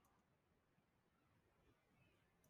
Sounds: Sneeze